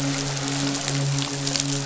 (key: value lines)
label: biophony, midshipman
recorder: SoundTrap 500